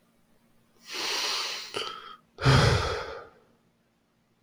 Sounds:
Sigh